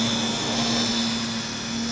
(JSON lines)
{"label": "anthrophony, boat engine", "recorder": "SoundTrap 500"}